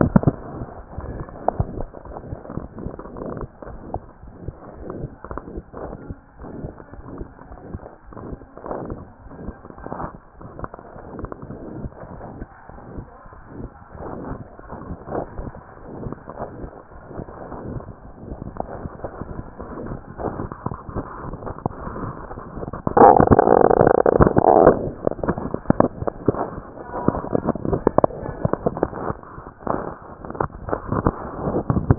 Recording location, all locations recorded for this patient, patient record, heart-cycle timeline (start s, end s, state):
mitral valve (MV)
aortic valve (AV)+tricuspid valve (TV)+mitral valve (MV)
#Age: Child
#Sex: Male
#Height: 86.0 cm
#Weight: 10.2 kg
#Pregnancy status: False
#Murmur: Present
#Murmur locations: aortic valve (AV)+mitral valve (MV)+tricuspid valve (TV)
#Most audible location: aortic valve (AV)
#Systolic murmur timing: Holosystolic
#Systolic murmur shape: Crescendo
#Systolic murmur grading: I/VI
#Systolic murmur pitch: Medium
#Systolic murmur quality: Harsh
#Diastolic murmur timing: nan
#Diastolic murmur shape: nan
#Diastolic murmur grading: nan
#Diastolic murmur pitch: nan
#Diastolic murmur quality: nan
#Outcome: Abnormal
#Campaign: 2015 screening campaign
0.00	11.92	unannotated
11.92	12.16	diastole
12.16	12.26	S1
12.26	12.38	systole
12.38	12.48	S2
12.48	12.74	diastole
12.74	12.82	S1
12.82	12.94	systole
12.94	13.08	S2
13.08	13.36	diastole
13.36	13.44	S1
13.44	13.56	systole
13.56	13.70	S2
13.70	14.02	diastole
14.02	14.16	S1
14.16	14.26	systole
14.26	14.38	S2
14.38	14.63	diastole
14.63	14.78	S1
14.78	14.86	systole
14.86	14.96	S2
14.96	15.16	diastole
15.16	15.30	S1
15.30	15.38	systole
15.38	15.54	S2
15.54	15.79	diastole
15.79	15.90	S1
15.90	16.00	systole
16.00	16.16	S2
16.16	16.42	diastole
16.42	16.52	S1
16.52	16.58	systole
16.58	16.70	S2
16.70	16.92	diastole
16.92	17.04	S1
17.04	17.16	systole
17.16	17.26	S2
17.26	17.50	diastole
17.50	17.62	S1
17.62	17.70	systole
17.70	17.84	S2
17.84	18.05	diastole
18.05	18.16	S1
18.16	31.98	unannotated